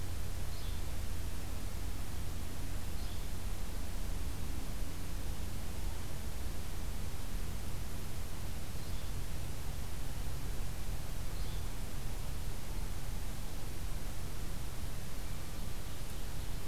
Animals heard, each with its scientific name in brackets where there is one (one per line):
Yellow-bellied Flycatcher (Empidonax flaviventris)